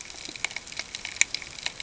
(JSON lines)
{"label": "ambient", "recorder": "HydroMoth"}